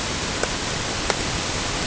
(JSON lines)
{"label": "ambient", "recorder": "HydroMoth"}